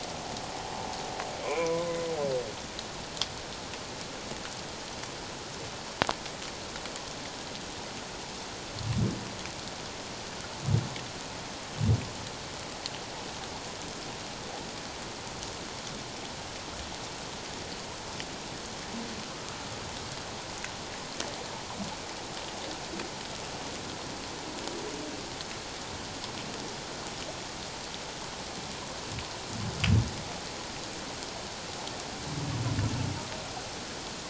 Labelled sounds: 1.4	1.9	humpback whale, 0.94 to 2.5 kHz

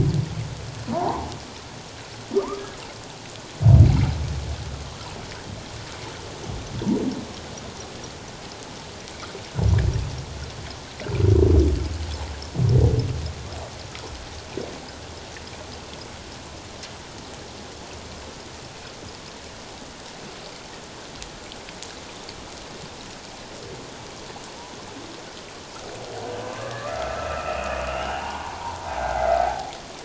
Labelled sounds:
0.9	1.3	humpback whale, 0.78 to 1.1 kHz
2.3	2.6	humpback whale, 0.88 to 1.3 kHz
26.6	28.6	humpback whale, 0.78 to 3.0 kHz
29.3	29.6	humpback whale, 0.78 to 0.91 kHz

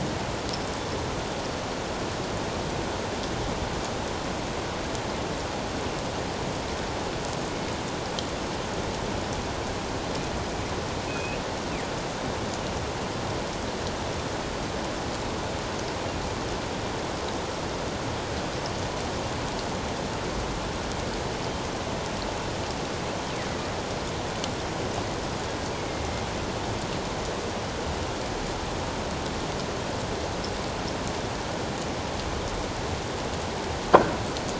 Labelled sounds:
11.1	11.4	killer whale, northern resident, G clan, call N24i, 2.4 to 2.8 kHz
25.7	26.2	killer whale, northern resident, A clan, AA subclan, 2.1 to 2.4 kHz

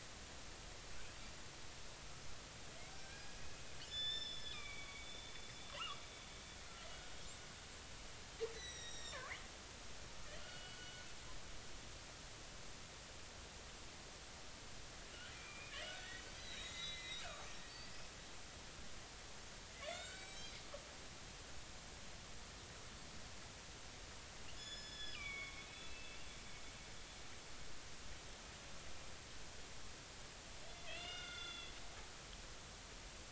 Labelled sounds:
2.9	5.1	killer whale, northern resident, 1.1 to 7.2 kHz
5.7	6.0	killer whale, northern resident, 0.93 to 1.5 kHz
8.5	9.3	killer whale, northern resident, 1.8 to 7.9 kHz
10.4	11.0	killer whale, northern resident, 1.3 to 3.4 kHz
15.3	16.0	killer whale, northern resident, 1.6 to 3.3 kHz
16.4	17.3	killer whale, northern resident, 1.9 to 4.1 kHz
17.7	18.1	killer whale, northern resident, 2.5 to 4.7 kHz
19.8	20.5	killer whale, northern resident, 1.3 to 7.9 kHz
24.5	26.3	killer whale, northern resident, 1.0 to 6.9 kHz
30.8	31.7	killer whale, northern resident, 1.3 to 5.1 kHz

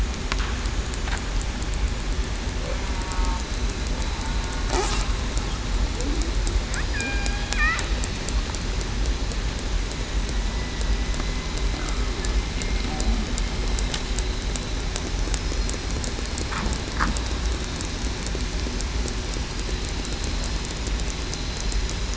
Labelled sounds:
2.9	3.4	killer whale, southern resident, 0.87 to 1.1 kHz
6.9	7.2	killer whale, southern resident, 1.6 to 1.9 kHz

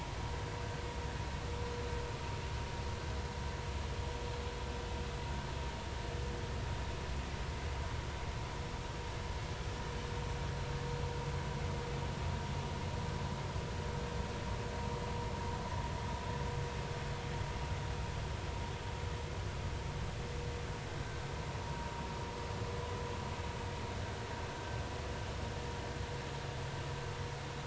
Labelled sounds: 21.6	21.9	vessel noise, 0.86 to 0.99 kHz

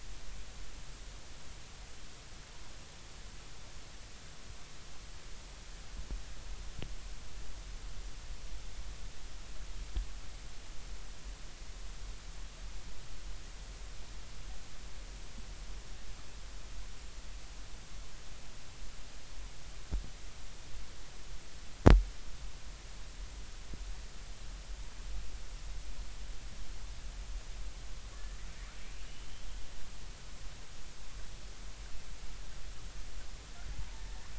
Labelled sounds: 29.1	29.4	killer whale, northern resident, R clan, call N32ii, 2.8 to 3.2 kHz
34.0	34.2	killer whale, northern resident, R clan, call N33, 1.7 to 1.8 kHz

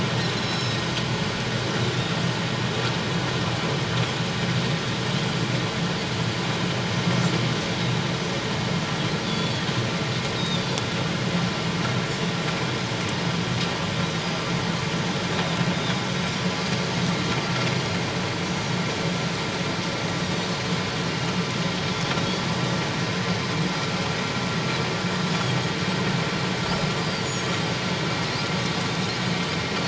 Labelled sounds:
0.3	0.8	Pacific white-sided dolphin, 3.8 to 6.7 kHz
9.2	10.7	Pacific white-sided dolphin, 3.3 to 3.8 kHz
18.4	18.7	Pacific white-sided dolphin, 5.6 to 5.9 kHz
25.3	25.6	Pacific white-sided dolphin, 6.5 to 6.9 kHz
27.0	27.4	Pacific white-sided dolphin, 4.5 to 4.9 kHz

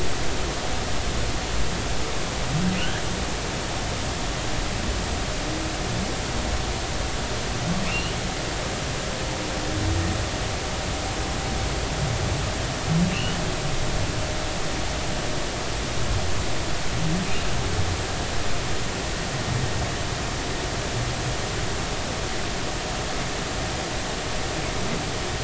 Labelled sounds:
7.8	8.2	humpback whale, 2.5 to 3.0 kHz
13.1	13.4	humpback whale, 2.6 to 3.0 kHz

